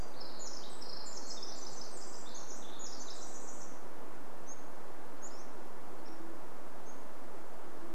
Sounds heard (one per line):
Band-tailed Pigeon call
Pacific-slope Flycatcher song
Pacific Wren song